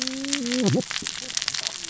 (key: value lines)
label: biophony, cascading saw
recorder: SoundTrap 600 or HydroMoth